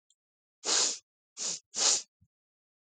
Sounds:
Sniff